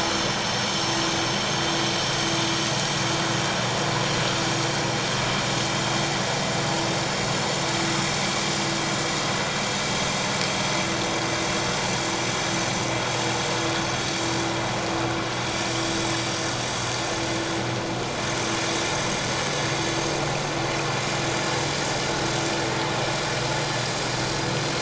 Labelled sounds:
1.7	2.4	vessel noise, 7.4 to 7.8 kHz

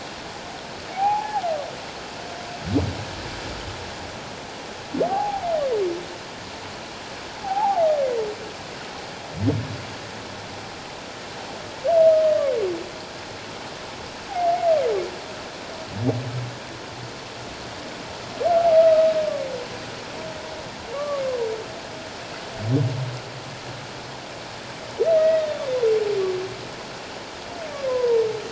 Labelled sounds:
0.9	1.5	humpback whale, 0.78 to 1.0 kHz
5.1	5.4	humpback whale, 0.78 to 0.91 kHz
7.4	7.9	humpback whale, 0.78 to 0.97 kHz
18.8	19.1	humpback whale, 1.2 to 1.4 kHz
20.9	21.2	humpback whale, 1.1 to 1.2 kHz
25.1	25.7	humpback whale, 1.8 to 3.8 kHz
27.9	28.2	humpback whale, 0.88 to 1.1 kHz

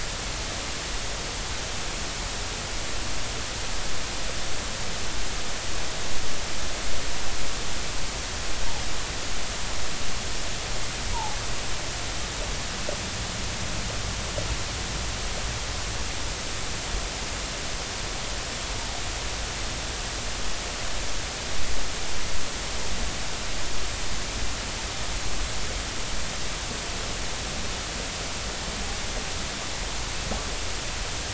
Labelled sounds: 11.1	11.4	humpback whale, 0.80 to 1.0 kHz

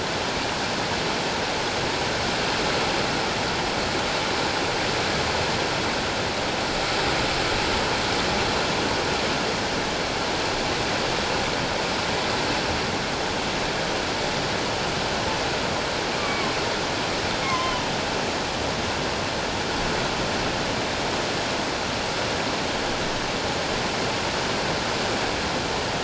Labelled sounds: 16.2	16.5	killer whale, offshore, 1.0 to 2.4 kHz
17.4	17.9	killer whale, offshore, 0.91 to 3.2 kHz

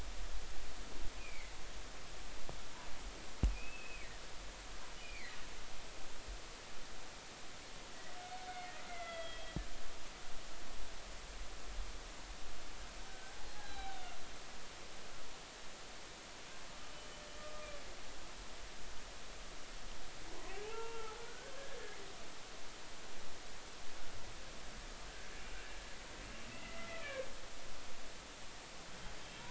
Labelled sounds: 1.2	1.5	humpback whale, 2.0 to 2.6 kHz
3.5	5.4	humpback whale, 1.6 to 2.7 kHz
8.9	9.6	humpback whale, 1.3 to 3.5 kHz
13.1	14.0	humpback whale, 0.80 to 4.1 kHz
17.4	17.7	humpback whale, 1.2 to 1.3 kHz
20.3	21.5	humpback whale, 0.80 to 1.8 kHz
26.5	27.0	humpback whale, 1.9 to 2.1 kHz

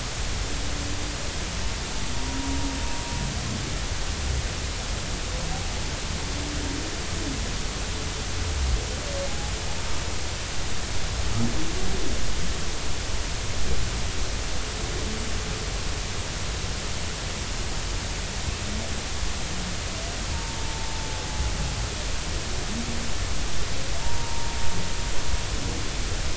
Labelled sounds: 2.1	2.6	humpback whale, 0.93 to 0.99 kHz
20.3	20.6	humpback whale, 0.83 to 0.99 kHz
21.7	21.9	humpback whale, 0.83 to 0.93 kHz
24.0	24.6	humpback whale, 0.86 to 0.99 kHz

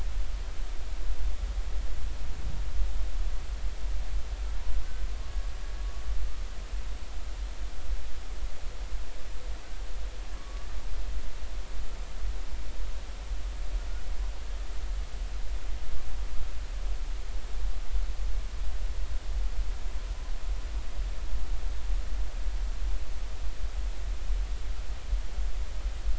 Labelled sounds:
10.3	10.7	humpback whale, 1.1 to 1.2 kHz

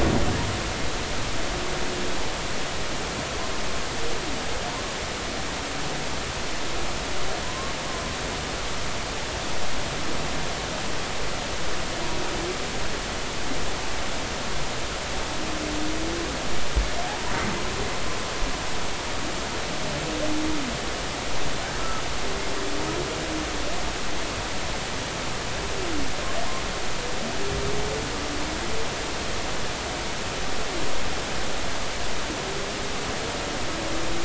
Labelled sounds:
7.4	7.7	humpback whale, 0.93 to 1.2 kHz

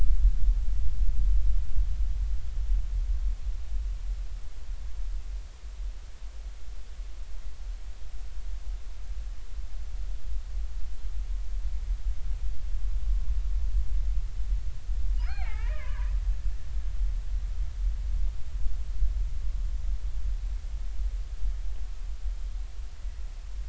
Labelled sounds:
15.2	16.2	killer whale, Bigg's (transient), 0.80 to 3.1 kHz

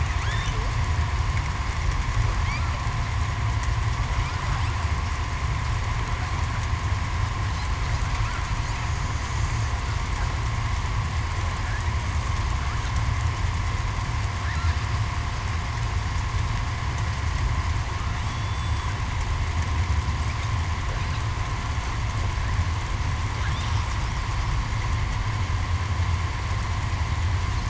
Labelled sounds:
18.3	18.7	killer whale, southern resident, 3.4 to 3.5 kHz

